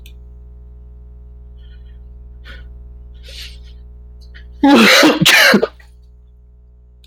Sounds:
Sneeze